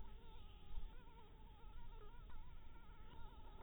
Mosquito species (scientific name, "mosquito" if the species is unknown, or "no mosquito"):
mosquito